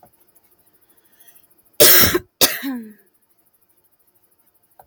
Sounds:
Cough